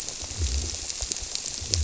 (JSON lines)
{"label": "biophony", "recorder": "SoundTrap 300"}